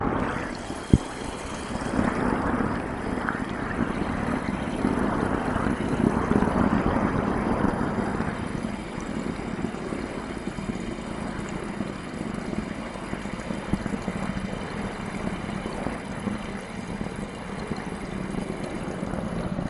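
Strong wind blowing. 0:00.0 - 0:09.0
Water running. 0:00.0 - 0:19.7

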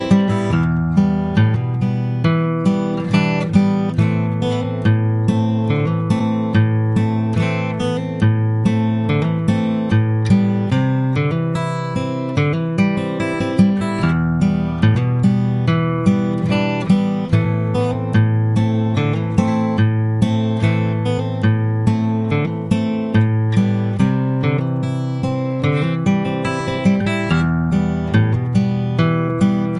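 An acoustic guitar plays a clean sequence of Em, C, and Am chords, creating a smooth melodic progression. 0:00.0 - 0:29.8

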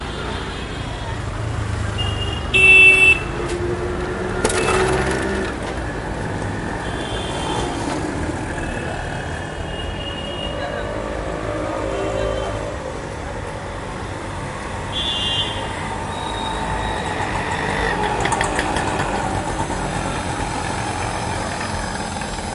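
Traffic noises in the background. 0:00.0 - 0:22.5
A horn honks in the distance. 0:02.0 - 0:02.5
A horn honks nearby. 0:02.5 - 0:03.2
A horn honks in the distance. 0:04.6 - 0:05.1
A horn honks in the distance. 0:06.9 - 0:08.2
A horn honks in the distance. 0:09.4 - 0:11.4
People are talking. 0:10.7 - 0:12.6
A horn honks. 0:14.9 - 0:15.9
A motorcycle slows down nearby. 0:16.2 - 0:22.5

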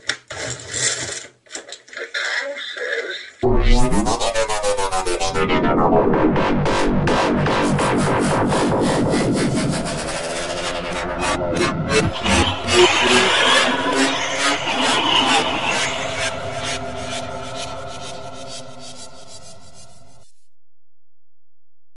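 A person is pulling the rope of a toy. 0:00.0 - 0:01.8
A person is speaking from a toy speaker. 0:01.9 - 0:03.4
A cow moos with impulsive sounds at the beginning, followed by varying oscillating electronic beats that fade off at the end. 0:03.3 - 0:20.8

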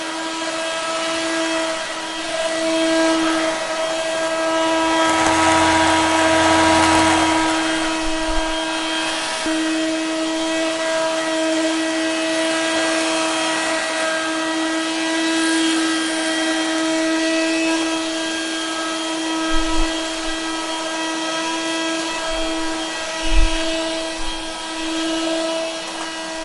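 A vacuum cleaner is buzzing loudly. 0:00.0 - 0:26.4

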